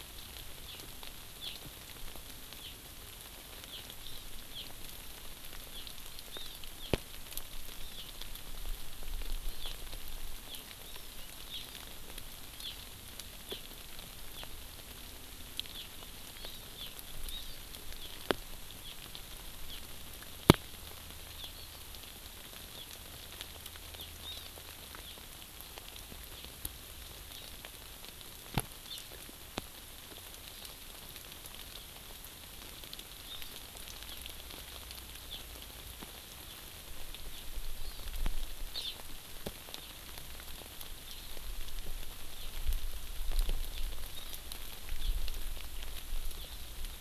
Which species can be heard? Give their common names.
Hawaii Amakihi